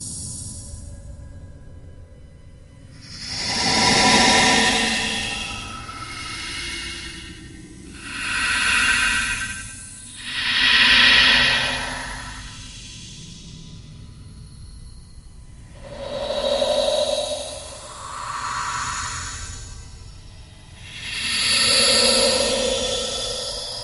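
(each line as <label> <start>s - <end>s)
Muffled and distorted breathing with uneven intervals. 0.0s - 23.8s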